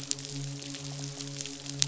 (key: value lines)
label: biophony, midshipman
recorder: SoundTrap 500